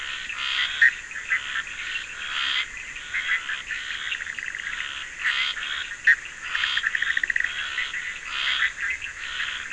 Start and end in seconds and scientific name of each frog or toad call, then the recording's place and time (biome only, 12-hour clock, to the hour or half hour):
0.0	9.7	Boana bischoffi
0.0	9.7	Scinax perereca
7.1	7.5	Leptodactylus latrans
Atlantic Forest, ~11pm